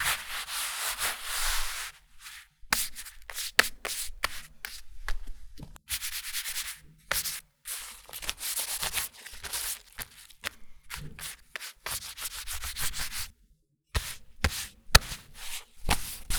Does the person using the object change the motion of the object sometimes?
yes